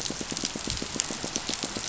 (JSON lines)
{"label": "biophony, pulse", "recorder": "SoundTrap 500"}